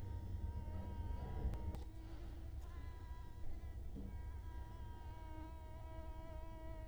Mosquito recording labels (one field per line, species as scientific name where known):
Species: Culex quinquefasciatus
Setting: cup